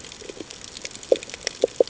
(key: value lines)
label: ambient
recorder: HydroMoth